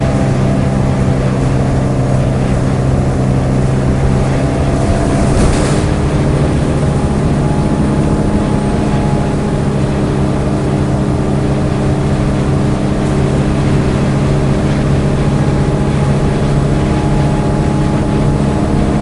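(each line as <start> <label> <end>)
0.0 A bus engine hums. 19.0
5.3 An object clatters loudly. 6.0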